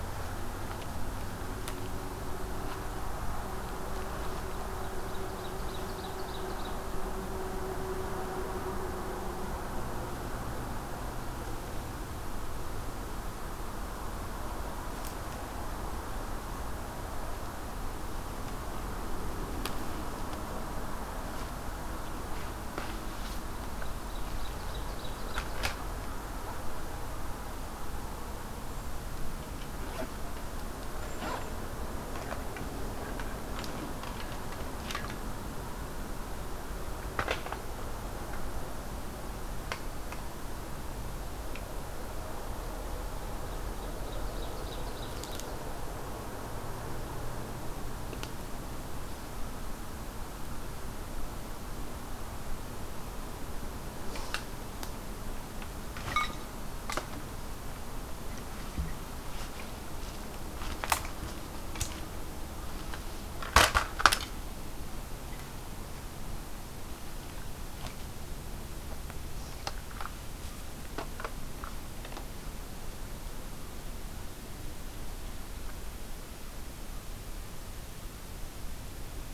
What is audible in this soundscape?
Ovenbird, Cedar Waxwing